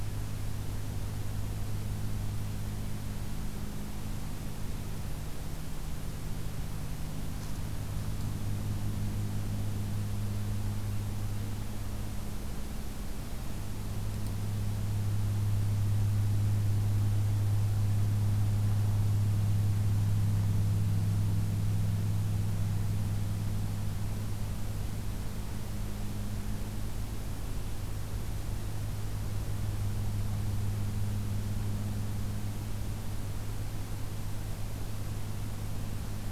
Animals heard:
forest ambience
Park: Acadia National Park